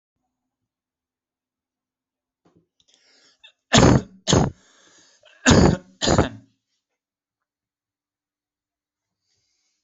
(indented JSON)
{
  "expert_labels": [
    {
      "quality": "ok",
      "cough_type": "unknown",
      "dyspnea": false,
      "wheezing": false,
      "stridor": false,
      "choking": false,
      "congestion": false,
      "nothing": true,
      "diagnosis": "COVID-19",
      "severity": "mild"
    }
  ],
  "age": 32,
  "gender": "male",
  "respiratory_condition": false,
  "fever_muscle_pain": false,
  "status": "healthy"
}